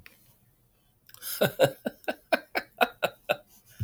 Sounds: Laughter